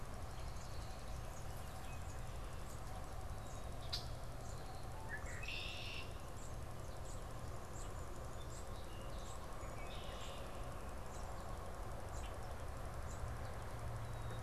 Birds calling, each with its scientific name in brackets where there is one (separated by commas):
unidentified bird, Song Sparrow (Melospiza melodia), Yellow Warbler (Setophaga petechia), Red-winged Blackbird (Agelaius phoeniceus)